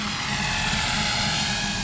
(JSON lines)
{"label": "anthrophony, boat engine", "recorder": "SoundTrap 500"}